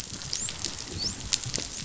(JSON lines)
{"label": "biophony, dolphin", "recorder": "SoundTrap 500"}